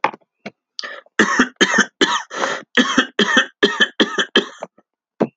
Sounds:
Cough